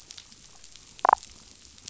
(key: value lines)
label: biophony, damselfish
recorder: SoundTrap 500